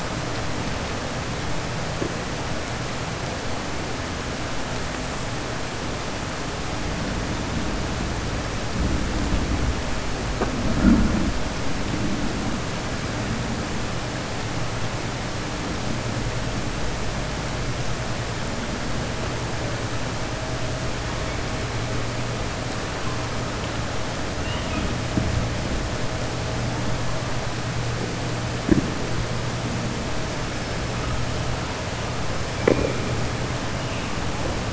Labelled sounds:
24.3	24.9	killer whale, southern resident, 1.8 to 3.7 kHz

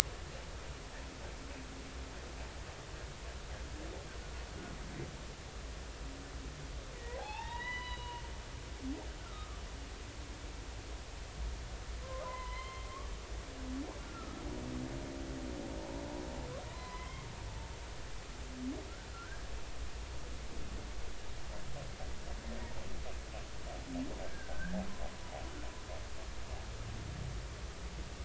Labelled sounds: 7.0	8.2	humpback whale, 0.80 to 5.0 kHz
9.2	9.6	humpback whale, 1.1 to 1.5 kHz
12.0	12.9	humpback whale, 0.93 to 3.2 kHz
15.0	15.4	humpback whale, 1.2 to 1.4 kHz
16.7	17.2	humpback whale, 0.96 to 3.3 kHz
19.1	19.5	humpback whale, 1.3 to 1.7 kHz
22.5	22.7	humpback whale, 1.8 to 2.0 kHz
24.2	24.8	humpback whale, 1.4 to 1.8 kHz

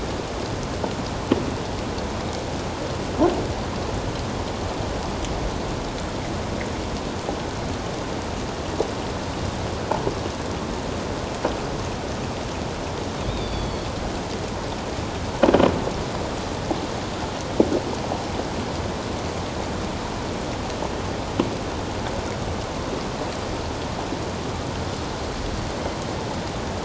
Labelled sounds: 13.3	13.9	killer whale, 3.2 to 4.8 kHz

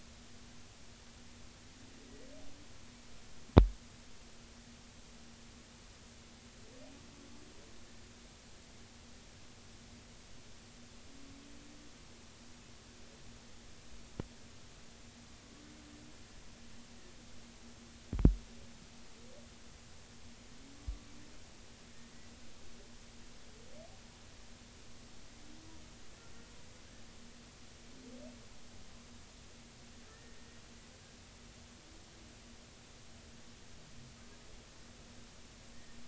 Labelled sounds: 30.1	30.5	humpback whale, 1.7 to 1.9 kHz
35.7	36.0	humpback whale, 1.8 to 1.9 kHz

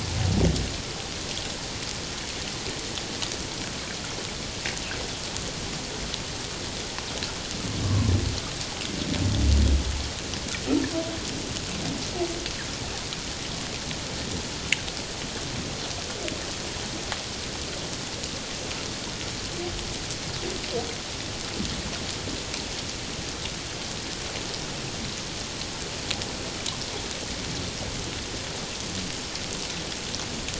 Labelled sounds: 7.8	8.1	humpback whale, 0.97 to 1.2 kHz

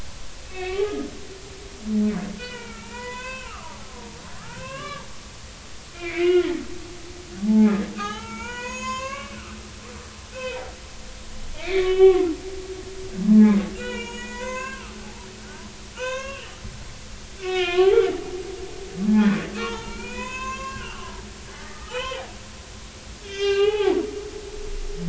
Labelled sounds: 0.5	1.1	humpback whale, 0.80 to 2.8 kHz
2.4	3.5	humpback whale, 0.86 to 4.7 kHz
4.4	5.0	humpback whale, 0.90 to 3.4 kHz
5.9	6.6	humpback whale, 1.3 to 3.3 kHz
7.4	9.4	humpback whale, 0.80 to 7.8 kHz
10.3	10.6	humpback whale, 1.4 to 2.7 kHz
11.5	12.3	humpback whale, 0.96 to 3.8 kHz
13.3	14.9	humpback whale, 0.80 to 7.0 kHz
15.9	16.6	humpback whale, 0.90 to 6.6 kHz
17.4	17.9	humpback whale, 0.99 to 3.8 kHz
19.1	21.2	humpback whale, 0.83 to 7.0 kHz
21.6	22.2	humpback whale, 0.80 to 3.2 kHz
23.2	24.0	humpback whale, 0.80 to 5.7 kHz

